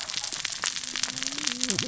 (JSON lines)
{"label": "biophony, cascading saw", "recorder": "SoundTrap 600 or HydroMoth"}